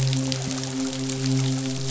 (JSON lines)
{"label": "biophony, midshipman", "recorder": "SoundTrap 500"}